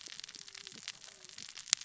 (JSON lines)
{"label": "biophony, cascading saw", "recorder": "SoundTrap 600 or HydroMoth"}